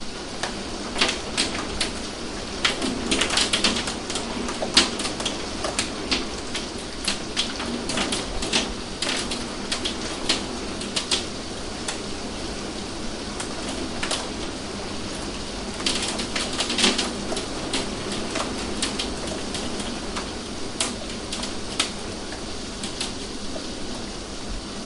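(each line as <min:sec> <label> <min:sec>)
0:00.0 A muffled rain sound heard indoors. 0:24.9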